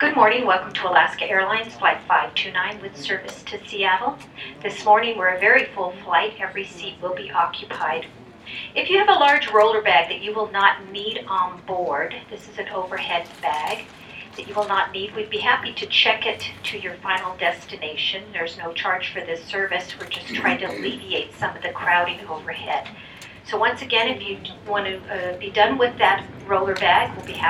Which industry is the person speaking works in?
airplane